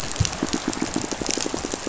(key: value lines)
label: biophony, pulse
recorder: SoundTrap 500